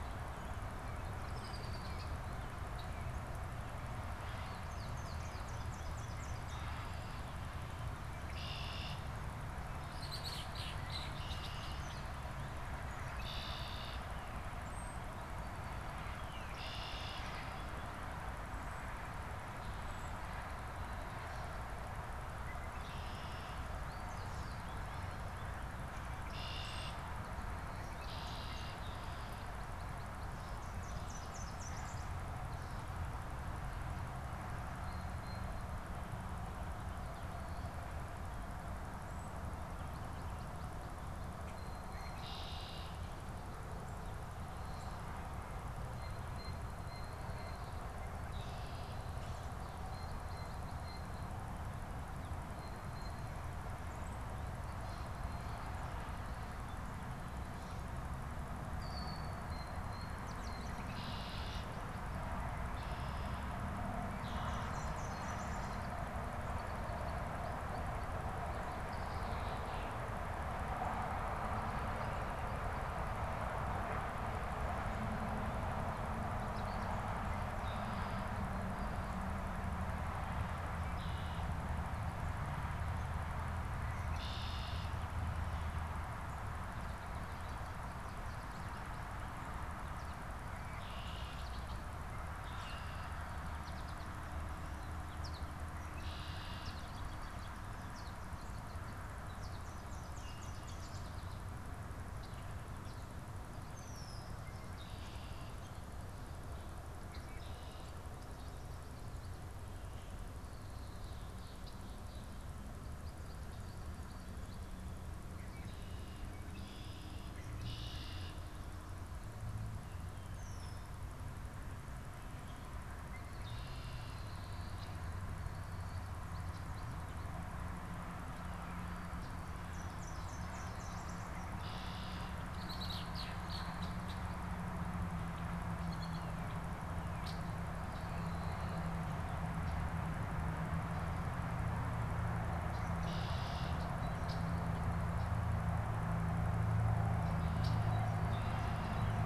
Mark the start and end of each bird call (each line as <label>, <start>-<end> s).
Red-winged Blackbird (Agelaius phoeniceus), 1.0-2.9 s
American Goldfinch (Spinus tristis), 4.2-6.7 s
Red-winged Blackbird (Agelaius phoeniceus), 8.1-9.2 s
Red-winged Blackbird (Agelaius phoeniceus), 9.6-12.3 s
Red-winged Blackbird (Agelaius phoeniceus), 13.2-14.2 s
unidentified bird, 14.7-15.0 s
Red-winged Blackbird (Agelaius phoeniceus), 16.3-17.7 s
unidentified bird, 19.7-20.3 s
Red-winged Blackbird (Agelaius phoeniceus), 22.7-23.7 s
American Goldfinch (Spinus tristis), 23.9-25.7 s
Red-winged Blackbird (Agelaius phoeniceus), 26.3-27.1 s
Red-winged Blackbird (Agelaius phoeniceus), 28.0-29.5 s
Nashville Warbler (Leiothlypis ruficapilla), 30.6-32.4 s
Blue Jay (Cyanocitta cristata), 34.8-35.6 s
Red-winged Blackbird (Agelaius phoeniceus), 42.0-43.2 s
Blue Jay (Cyanocitta cristata), 45.6-55.7 s
Red-winged Blackbird (Agelaius phoeniceus), 58.7-59.4 s
Blue Jay (Cyanocitta cristata), 59.5-60.1 s
unidentified bird, 60.2-60.8 s
Red-winged Blackbird (Agelaius phoeniceus), 60.9-62.0 s
Red-winged Blackbird (Agelaius phoeniceus), 62.6-64.7 s
Nashville Warbler (Leiothlypis ruficapilla), 64.5-66.1 s
Red-winged Blackbird (Agelaius phoeniceus), 68.8-70.3 s
Red-winged Blackbird (Agelaius phoeniceus), 80.5-85.1 s